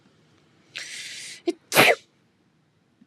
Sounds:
Sneeze